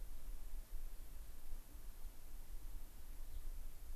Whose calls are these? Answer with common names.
Gray-crowned Rosy-Finch